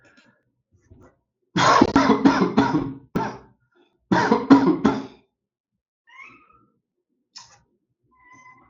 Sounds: Laughter